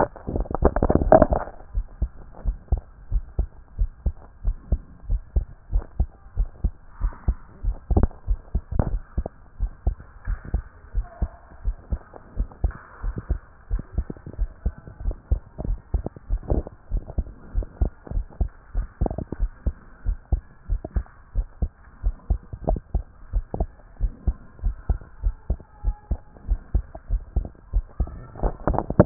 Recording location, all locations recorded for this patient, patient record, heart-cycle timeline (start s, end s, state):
tricuspid valve (TV)
aortic valve (AV)+pulmonary valve (PV)+tricuspid valve (TV)+mitral valve (MV)
#Age: Child
#Sex: Male
#Height: 134.0 cm
#Weight: 28.5 kg
#Pregnancy status: False
#Murmur: Absent
#Murmur locations: nan
#Most audible location: nan
#Systolic murmur timing: nan
#Systolic murmur shape: nan
#Systolic murmur grading: nan
#Systolic murmur pitch: nan
#Systolic murmur quality: nan
#Diastolic murmur timing: nan
#Diastolic murmur shape: nan
#Diastolic murmur grading: nan
#Diastolic murmur pitch: nan
#Diastolic murmur quality: nan
#Outcome: Normal
#Campaign: 2014 screening campaign
0.00	1.52	unannotated
1.52	1.74	diastole
1.74	1.86	S1
1.86	2.00	systole
2.00	2.10	S2
2.10	2.46	diastole
2.46	2.56	S1
2.56	2.70	systole
2.70	2.80	S2
2.80	3.12	diastole
3.12	3.24	S1
3.24	3.38	systole
3.38	3.48	S2
3.48	3.78	diastole
3.78	3.90	S1
3.90	4.04	systole
4.04	4.14	S2
4.14	4.44	diastole
4.44	4.56	S1
4.56	4.70	systole
4.70	4.80	S2
4.80	5.08	diastole
5.08	5.22	S1
5.22	5.34	systole
5.34	5.46	S2
5.46	5.72	diastole
5.72	5.84	S1
5.84	5.98	systole
5.98	6.08	S2
6.08	6.38	diastole
6.38	6.48	S1
6.48	6.62	systole
6.62	6.72	S2
6.72	7.02	diastole
7.02	7.12	S1
7.12	7.26	systole
7.26	7.36	S2
7.36	7.68	diastole
7.68	7.76	S1
7.76	7.92	systole
7.92	8.04	S2
8.04	8.28	diastole
8.28	8.38	S1
8.38	8.54	systole
8.54	8.60	S2
8.60	8.88	diastole
8.88	8.98	S1
8.98	9.16	systole
9.16	9.24	S2
9.24	9.60	diastole
9.60	9.70	S1
9.70	9.86	systole
9.86	9.96	S2
9.96	10.28	diastole
10.28	10.38	S1
10.38	10.52	systole
10.52	10.62	S2
10.62	10.94	diastole
10.94	11.06	S1
11.06	11.20	systole
11.20	11.30	S2
11.30	11.64	diastole
11.64	11.76	S1
11.76	11.90	systole
11.90	12.00	S2
12.00	12.38	diastole
12.38	12.48	S1
12.48	12.62	systole
12.62	12.72	S2
12.72	13.04	diastole
13.04	13.16	S1
13.16	13.30	systole
13.30	13.40	S2
13.40	13.70	diastole
13.70	13.82	S1
13.82	13.96	systole
13.96	14.06	S2
14.06	14.38	diastole
14.38	14.50	S1
14.50	14.64	systole
14.64	14.74	S2
14.74	15.04	diastole
15.04	15.16	S1
15.16	15.30	systole
15.30	15.40	S2
15.40	15.66	diastole
15.66	15.78	S1
15.78	15.92	systole
15.92	16.04	S2
16.04	16.30	diastole
16.30	16.40	S1
16.40	16.52	systole
16.52	16.64	S2
16.64	16.92	diastole
16.92	17.02	S1
17.02	17.16	systole
17.16	17.26	S2
17.26	17.54	diastole
17.54	17.66	S1
17.66	17.80	systole
17.80	17.90	S2
17.90	18.14	diastole
18.14	18.26	S1
18.26	18.40	systole
18.40	18.50	S2
18.50	18.76	diastole
18.76	18.86	S1
18.86	19.00	systole
19.00	19.12	S2
19.12	19.40	diastole
19.40	19.50	S1
19.50	19.66	systole
19.66	19.74	S2
19.74	20.06	diastole
20.06	20.18	S1
20.18	20.32	systole
20.32	20.42	S2
20.42	20.70	diastole
20.70	20.80	S1
20.80	20.94	systole
20.94	21.04	S2
21.04	21.36	diastole
21.36	21.46	S1
21.46	21.60	systole
21.60	21.70	S2
21.70	22.04	diastole
22.04	22.16	S1
22.16	22.30	systole
22.30	22.40	S2
22.40	22.68	diastole
22.68	22.80	S1
22.80	22.94	systole
22.94	23.04	S2
23.04	23.34	diastole
23.34	23.44	S1
23.44	23.58	systole
23.58	23.68	S2
23.68	24.00	diastole
24.00	24.12	S1
24.12	24.26	systole
24.26	24.36	S2
24.36	24.64	diastole
24.64	24.76	S1
24.76	24.88	systole
24.88	24.98	S2
24.98	25.24	diastole
25.24	25.34	S1
25.34	25.48	systole
25.48	25.58	S2
25.58	25.84	diastole
25.84	25.96	S1
25.96	26.10	systole
26.10	26.18	S2
26.18	26.48	diastole
26.48	26.60	S1
26.60	26.74	systole
26.74	26.84	S2
26.84	27.10	diastole
27.10	27.22	S1
27.22	27.36	systole
27.36	27.46	S2
27.46	27.74	diastole
27.74	27.84	S1
27.84	28.00	systole
28.00	28.10	S2
28.10	29.06	unannotated